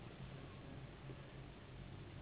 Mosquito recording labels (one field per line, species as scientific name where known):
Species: Anopheles gambiae s.s.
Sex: female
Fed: unfed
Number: one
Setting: insect culture